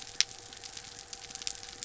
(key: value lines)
label: anthrophony, boat engine
recorder: SoundTrap 300